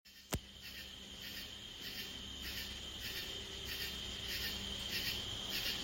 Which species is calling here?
Pterophylla camellifolia